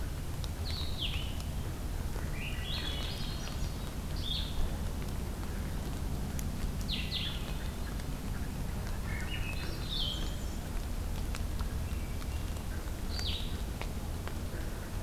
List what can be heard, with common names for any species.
Blue-headed Vireo, Swainson's Thrush, Hermit Thrush